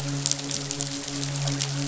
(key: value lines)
label: biophony, midshipman
recorder: SoundTrap 500